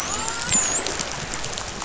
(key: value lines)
label: biophony, dolphin
recorder: SoundTrap 500